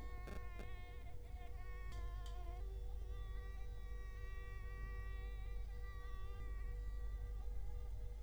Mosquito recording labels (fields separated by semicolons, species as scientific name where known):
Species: Culex quinquefasciatus; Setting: cup